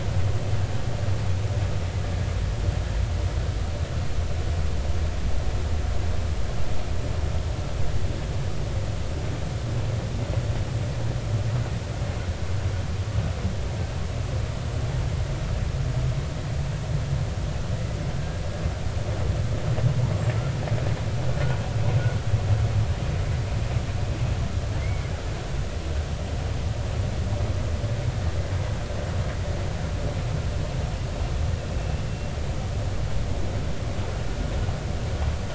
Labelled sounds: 24.8	25.1	killer whale, 2.0 to 2.3 kHz
31.7	32.0	killer whale, 2.6 to 2.8 kHz

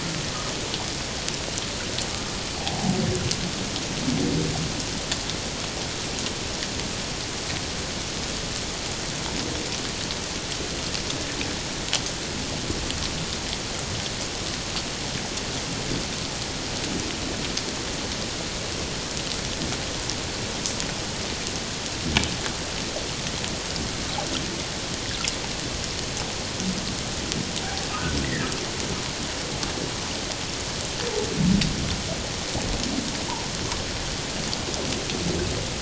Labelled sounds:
28.2	28.5	humpback whale, 1.6 to 2.1 kHz

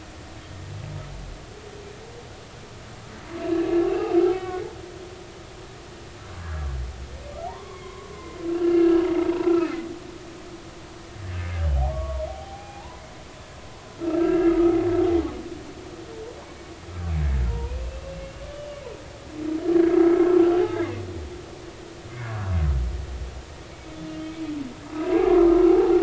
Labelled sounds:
3.5	4.7	humpback whale, 1.4 to 2.8 kHz
6.4	6.7	humpback whale, 1.3 to 1.7 kHz
7.4	9.0	humpback whale, 0.80 to 2.8 kHz
9.5	9.7	humpback whale, 1.2 to 1.4 kHz
11.9	13.0	humpback whale, 0.80 to 2.5 kHz
13.9	14.8	humpback whale, 1.2 to 1.8 kHz
17.5	18.2	humpback whale, 0.90 to 2.8 kHz
18.5	18.8	humpback whale, 2.8 to 3.0 kHz
19.7	20.2	humpback whale, 1.2 to 1.7 kHz
22.1	22.5	humpback whale, 1.4 to 1.9 kHz
25.0	26.0	humpback whale, 0.80 to 2.8 kHz

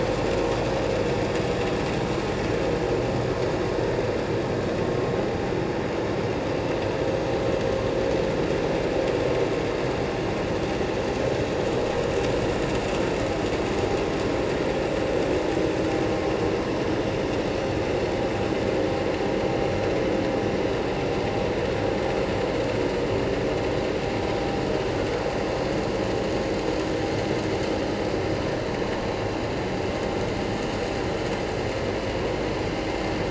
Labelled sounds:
17.5	17.8	vessel noise, 4.3 to 4.5 kHz

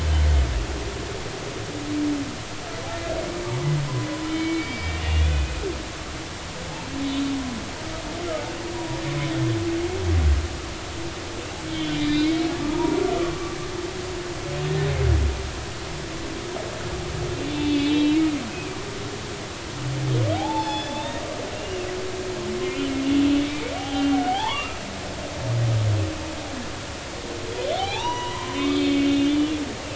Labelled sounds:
4.3	5.6	humpback whale, 2.2 to 5.1 kHz
7.0	7.3	humpback whale, 3.5 to 4.0 kHz
8.8	9.0	humpback whale, 0.93 to 0.99 kHz
11.7	13.0	humpback whale, 0.86 to 4.9 kHz
14.6	14.9	humpback whale, 1.7 to 1.9 kHz
17.6	18.2	humpback whale, 2.2 to 4.0 kHz
18.5	18.8	humpback whale, 2.3 to 2.6 kHz
20.3	21.2	humpback whale, 0.80 to 5.3 kHz
21.5	21.9	humpback whale, 2.5 to 2.9 kHz
23.7	24.8	humpback whale, 0.80 to 3.6 kHz
27.8	29.3	humpback whale, 0.80 to 5.9 kHz

